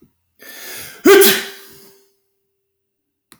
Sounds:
Sneeze